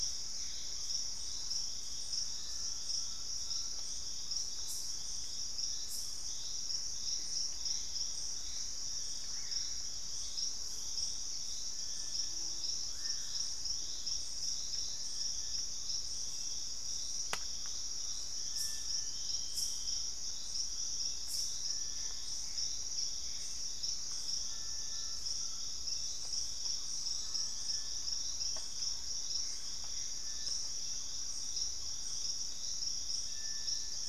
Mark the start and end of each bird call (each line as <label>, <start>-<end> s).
Gray Antbird (Cercomacra cinerascens), 0.0-1.1 s
Purple-throated Fruitcrow (Querula purpurata), 0.0-5.7 s
Collared Trogon (Trogon collaris), 2.2-4.0 s
Gray Antbird (Cercomacra cinerascens), 7.0-9.3 s
Purple-throated Fruitcrow (Querula purpurata), 7.9-18.5 s
Screaming Piha (Lipaugus vociferans), 8.8-13.8 s
Little Tinamou (Crypturellus soui), 11.6-34.1 s
Collared Trogon (Trogon collaris), 17.2-19.3 s
Gray Antbird (Cercomacra cinerascens), 21.7-23.7 s
White-bellied Tody-Tyrant (Hemitriccus griseipectus), 22.7-23.3 s
Collared Trogon (Trogon collaris), 23.9-25.9 s
Thrush-like Wren (Campylorhynchus turdinus), 26.5-32.6 s
Purple-throated Fruitcrow (Querula purpurata), 28.5-34.1 s
Gray Antbird (Cercomacra cinerascens), 29.4-34.1 s